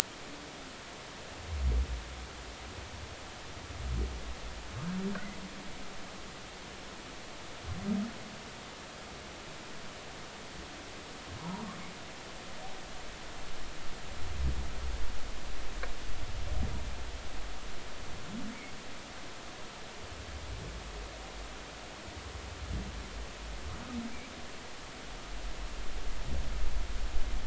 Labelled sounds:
11.4	11.6	humpback whale, 0.83 to 1.1 kHz

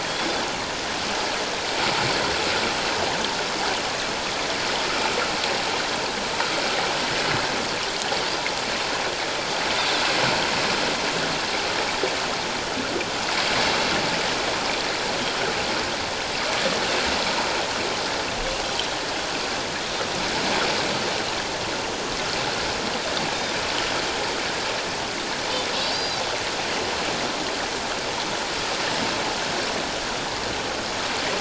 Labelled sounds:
25.8	26.2	Pacific white-sided dolphin, 3.9 to 4.9 kHz

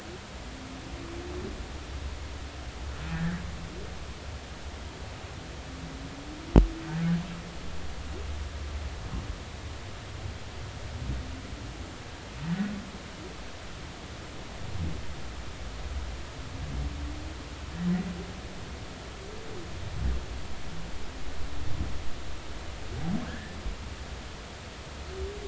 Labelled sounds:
3.1	3.4	humpback whale, 1.5 to 2.0 kHz
23.2	23.6	humpback whale, 1.4 to 1.9 kHz

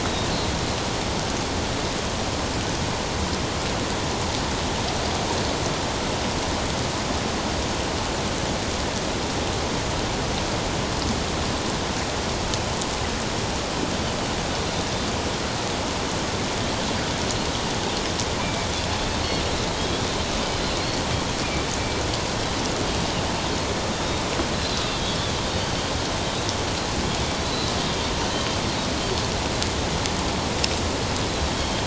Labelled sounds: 17.2	17.5	Pacific white-sided dolphin, 4.2 to 4.4 kHz
18.4	18.7	Pacific white-sided dolphin, 2.2 to 2.5 kHz
19.7	20.0	Pacific white-sided dolphin, 3.2 to 3.4 kHz
24.9	25.2	Pacific white-sided dolphin, 3.2 to 3.5 kHz
27.4	27.7	Pacific white-sided dolphin, 3.9 to 4.1 kHz
31.5	31.8	Pacific white-sided dolphin, 3.1 to 3.3 kHz

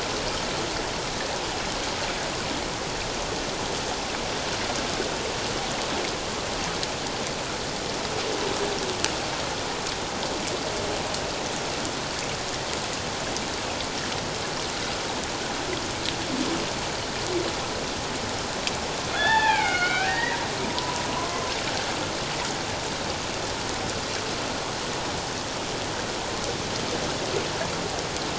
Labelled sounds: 19.1	20.4	humpback whale, 0.78 to 3.6 kHz
20.8	21.5	humpback whale, 0.94 to 1.1 kHz

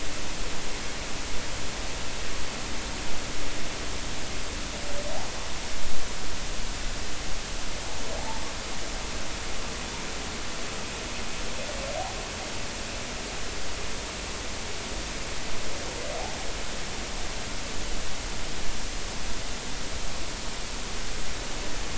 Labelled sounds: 8.2	8.4	humpback whale, 0.80 to 0.96 kHz

